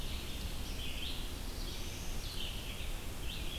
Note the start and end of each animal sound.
0.0s-3.6s: Red-eyed Vireo (Vireo olivaceus)
0.7s-2.4s: Black-throated Blue Warbler (Setophaga caerulescens)

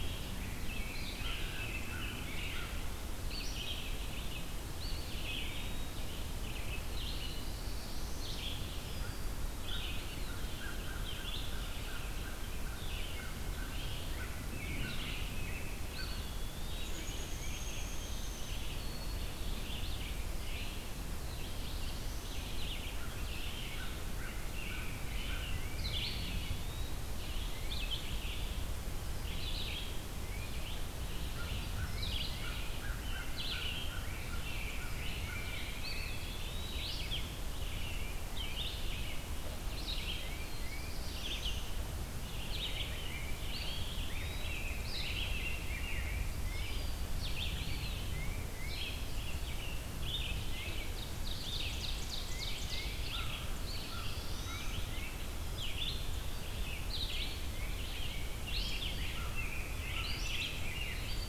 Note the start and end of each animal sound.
0.0s-2.7s: Rose-breasted Grosbeak (Pheucticus ludovicianus)
0.0s-11.6s: Red-eyed Vireo (Vireo olivaceus)
0.9s-2.8s: American Crow (Corvus brachyrhynchos)
4.6s-6.1s: Eastern Wood-Pewee (Contopus virens)
7.0s-8.4s: Black-throated Blue Warbler (Setophaga caerulescens)
9.9s-10.9s: Eastern Wood-Pewee (Contopus virens)
10.2s-16.6s: American Crow (Corvus brachyrhynchos)
12.3s-61.3s: Red-eyed Vireo (Vireo olivaceus)
15.7s-17.3s: Eastern Wood-Pewee (Contopus virens)
16.6s-19.0s: Downy Woodpecker (Dryobates pubescens)
21.0s-22.4s: Black-throated Blue Warbler (Setophaga caerulescens)
22.5s-25.1s: American Crow (Corvus brachyrhynchos)
24.0s-26.7s: Rose-breasted Grosbeak (Pheucticus ludovicianus)
25.7s-27.2s: Eastern Wood-Pewee (Contopus virens)
27.4s-27.8s: Tufted Titmouse (Baeolophus bicolor)
31.0s-36.4s: American Crow (Corvus brachyrhynchos)
31.9s-32.6s: Tufted Titmouse (Baeolophus bicolor)
32.4s-36.5s: Rose-breasted Grosbeak (Pheucticus ludovicianus)
35.6s-37.1s: Eastern Wood-Pewee (Contopus virens)
37.8s-38.8s: Tufted Titmouse (Baeolophus bicolor)
40.1s-41.0s: Tufted Titmouse (Baeolophus bicolor)
40.3s-41.7s: Black-throated Blue Warbler (Setophaga caerulescens)
42.2s-46.8s: Rose-breasted Grosbeak (Pheucticus ludovicianus)
43.3s-45.0s: Eastern Wood-Pewee (Contopus virens)
47.5s-48.3s: Eastern Wood-Pewee (Contopus virens)
48.0s-48.8s: Tufted Titmouse (Baeolophus bicolor)
50.3s-51.0s: Tufted Titmouse (Baeolophus bicolor)
50.9s-53.2s: Ovenbird (Seiurus aurocapilla)
52.3s-53.1s: Tufted Titmouse (Baeolophus bicolor)
52.8s-55.3s: American Crow (Corvus brachyrhynchos)
53.4s-55.0s: Black-throated Blue Warbler (Setophaga caerulescens)
53.4s-54.9s: Eastern Wood-Pewee (Contopus virens)
54.4s-55.5s: Tufted Titmouse (Baeolophus bicolor)
56.9s-57.9s: Tufted Titmouse (Baeolophus bicolor)
57.7s-61.1s: Rose-breasted Grosbeak (Pheucticus ludovicianus)
58.9s-60.5s: American Crow (Corvus brachyrhynchos)
60.1s-61.3s: Song Sparrow (Melospiza melodia)

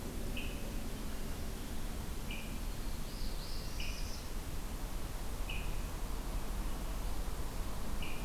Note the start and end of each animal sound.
0.3s-0.6s: Swainson's Thrush (Catharus ustulatus)
2.2s-2.6s: Swainson's Thrush (Catharus ustulatus)
2.8s-4.3s: Northern Parula (Setophaga americana)
3.7s-4.0s: Swainson's Thrush (Catharus ustulatus)
5.3s-5.7s: Swainson's Thrush (Catharus ustulatus)
7.9s-8.2s: Swainson's Thrush (Catharus ustulatus)

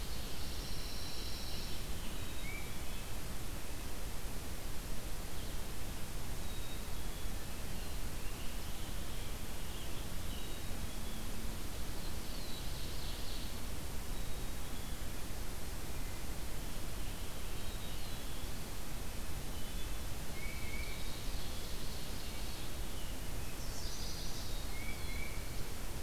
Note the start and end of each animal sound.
0.3s-1.9s: Pine Warbler (Setophaga pinus)
2.1s-3.0s: Tufted Titmouse (Baeolophus bicolor)
6.2s-7.4s: Black-capped Chickadee (Poecile atricapillus)
7.6s-10.0s: Scarlet Tanager (Piranga olivacea)
10.2s-11.3s: Black-capped Chickadee (Poecile atricapillus)
11.3s-13.7s: Ovenbird (Seiurus aurocapilla)
11.7s-13.4s: Black-throated Blue Warbler (Setophaga caerulescens)
14.0s-15.1s: Black-capped Chickadee (Poecile atricapillus)
17.4s-18.5s: Black-capped Chickadee (Poecile atricapillus)
17.5s-19.0s: Black-throated Blue Warbler (Setophaga caerulescens)
20.1s-21.1s: Tufted Titmouse (Baeolophus bicolor)
20.5s-22.6s: Ovenbird (Seiurus aurocapilla)
23.4s-24.7s: Chestnut-sided Warbler (Setophaga pensylvanica)
24.6s-25.5s: Tufted Titmouse (Baeolophus bicolor)
24.8s-26.0s: Black-throated Blue Warbler (Setophaga caerulescens)

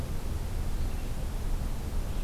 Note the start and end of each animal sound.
0.0s-2.2s: Red-eyed Vireo (Vireo olivaceus)

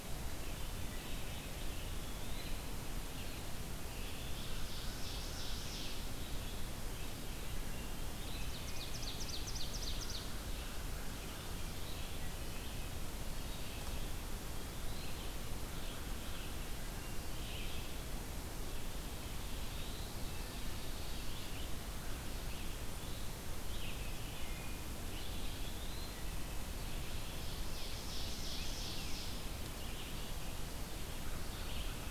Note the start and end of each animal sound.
0.5s-32.1s: Red-eyed Vireo (Vireo olivaceus)
1.4s-2.8s: Eastern Wood-Pewee (Contopus virens)
3.7s-6.2s: Ovenbird (Seiurus aurocapilla)
7.1s-8.6s: Eastern Wood-Pewee (Contopus virens)
8.2s-10.4s: Ovenbird (Seiurus aurocapilla)
9.7s-11.3s: American Crow (Corvus brachyrhynchos)
14.4s-15.3s: Eastern Wood-Pewee (Contopus virens)
19.2s-20.1s: Eastern Wood-Pewee (Contopus virens)
24.0s-25.0s: Wood Thrush (Hylocichla mustelina)
25.3s-26.3s: Eastern Wood-Pewee (Contopus virens)
26.0s-26.6s: Wood Thrush (Hylocichla mustelina)
27.3s-29.6s: Ovenbird (Seiurus aurocapilla)

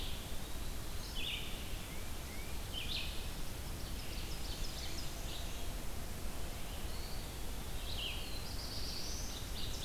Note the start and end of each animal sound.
0.0s-0.8s: Eastern Wood-Pewee (Contopus virens)
0.0s-9.8s: Red-eyed Vireo (Vireo olivaceus)
1.7s-2.6s: Tufted Titmouse (Baeolophus bicolor)
3.6s-5.3s: Ovenbird (Seiurus aurocapilla)
6.8s-8.1s: Eastern Wood-Pewee (Contopus virens)
7.8s-9.6s: Black-throated Blue Warbler (Setophaga caerulescens)

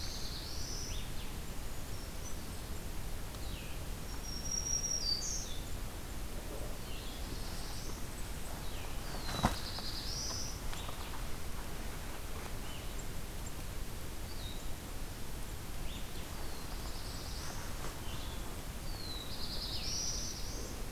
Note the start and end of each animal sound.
0.0s-1.2s: Black-throated Blue Warbler (Setophaga caerulescens)
0.0s-20.9s: Blue-headed Vireo (Vireo solitarius)
3.9s-5.7s: Black-throated Green Warbler (Setophaga virens)
6.7s-8.2s: Black-throated Blue Warbler (Setophaga caerulescens)
9.0s-10.7s: Black-throated Blue Warbler (Setophaga caerulescens)
16.2s-17.9s: Black-throated Blue Warbler (Setophaga caerulescens)
18.7s-20.9s: Black-throated Blue Warbler (Setophaga caerulescens)

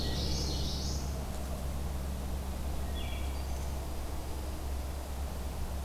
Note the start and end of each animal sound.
0.0s-1.3s: Common Yellowthroat (Geothlypis trichas)
0.1s-0.5s: Wood Thrush (Hylocichla mustelina)
2.8s-3.8s: Wood Thrush (Hylocichla mustelina)
3.6s-5.1s: Dark-eyed Junco (Junco hyemalis)

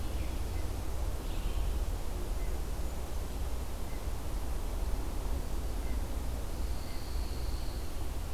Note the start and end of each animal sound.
1.0s-1.9s: Red-eyed Vireo (Vireo olivaceus)
6.1s-8.2s: Pine Warbler (Setophaga pinus)

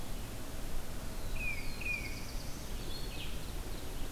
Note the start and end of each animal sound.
0.0s-4.1s: Red-eyed Vireo (Vireo olivaceus)
1.1s-2.9s: Black-throated Blue Warbler (Setophaga caerulescens)
1.2s-2.3s: Tufted Titmouse (Baeolophus bicolor)

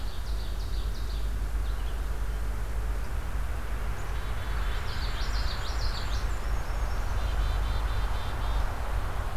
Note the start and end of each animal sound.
0.0s-1.3s: Ovenbird (Seiurus aurocapilla)
0.0s-9.4s: Red-eyed Vireo (Vireo olivaceus)
3.9s-5.2s: Black-capped Chickadee (Poecile atricapillus)
4.7s-6.3s: Common Yellowthroat (Geothlypis trichas)
4.8s-7.1s: Black-and-white Warbler (Mniotilta varia)
6.6s-8.7s: Black-capped Chickadee (Poecile atricapillus)

